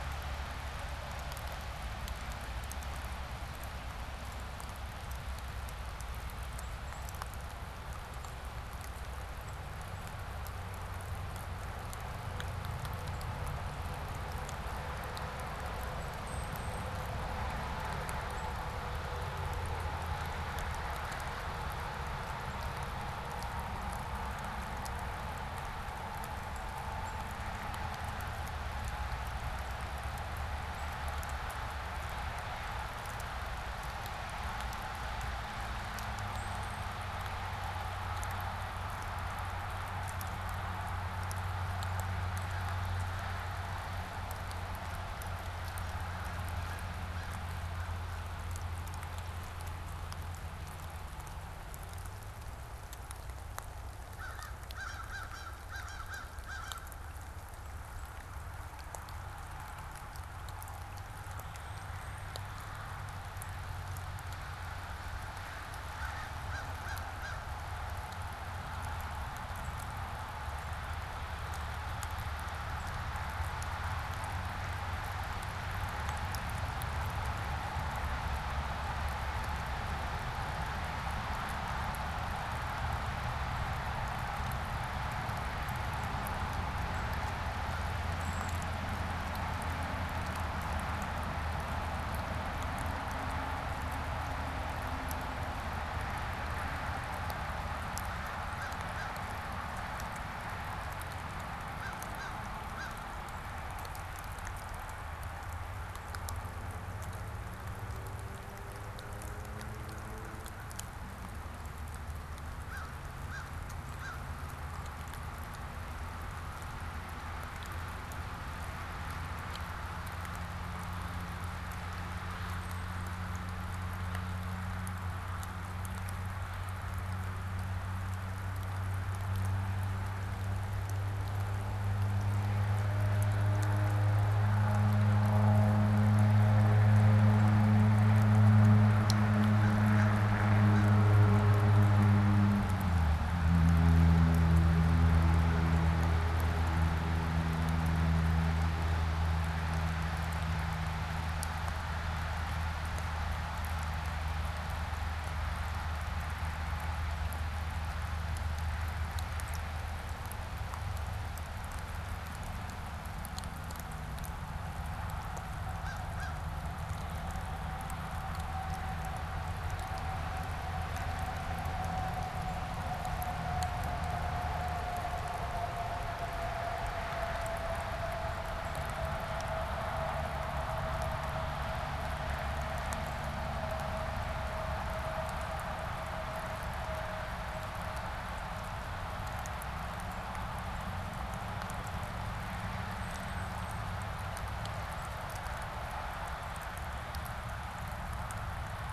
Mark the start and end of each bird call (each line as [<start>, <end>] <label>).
[6.16, 10.16] unidentified bird
[16.16, 17.26] unidentified bird
[18.16, 31.16] unidentified bird
[36.06, 37.06] unidentified bird
[53.86, 56.96] American Crow (Corvus brachyrhynchos)
[61.46, 62.36] unidentified bird
[65.66, 67.66] American Crow (Corvus brachyrhynchos)
[69.46, 73.06] unidentified bird
[87.96, 88.66] unidentified bird
[97.66, 103.16] American Crow (Corvus brachyrhynchos)
[112.26, 114.36] American Crow (Corvus brachyrhynchos)
[122.46, 123.16] unidentified bird
[139.36, 140.96] American Crow (Corvus brachyrhynchos)
[165.56, 166.46] American Crow (Corvus brachyrhynchos)
[192.76, 193.96] unidentified bird